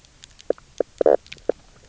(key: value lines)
label: biophony, knock croak
recorder: SoundTrap 300